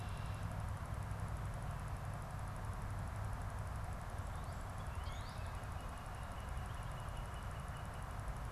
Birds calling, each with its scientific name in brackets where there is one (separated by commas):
Northern Cardinal (Cardinalis cardinalis)